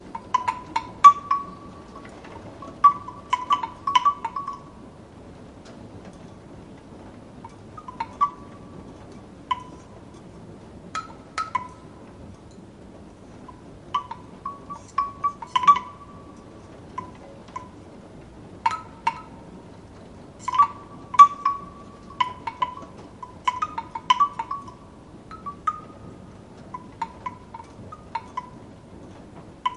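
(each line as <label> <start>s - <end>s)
Soft, hollow wooden knocking or clacking sound. 0.1s - 5.0s
Soft, hollow wooden clacking sounds. 7.8s - 11.8s
Soft, hollow wooden knocking with slightly varied pitch in each chime. 13.7s - 28.7s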